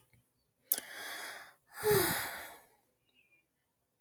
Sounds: Sigh